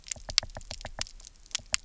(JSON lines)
{"label": "biophony, knock", "recorder": "SoundTrap 300"}